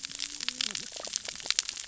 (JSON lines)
{"label": "biophony, cascading saw", "recorder": "SoundTrap 600 or HydroMoth"}